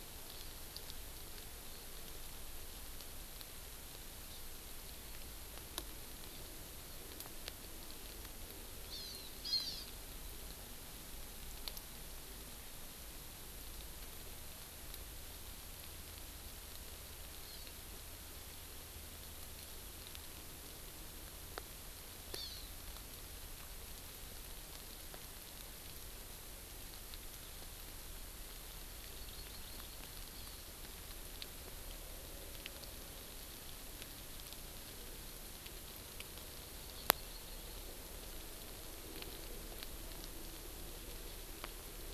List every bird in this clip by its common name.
Hawaiian Hawk, Hawaii Amakihi